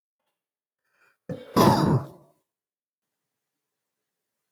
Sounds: Sneeze